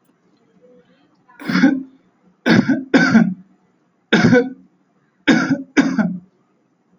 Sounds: Cough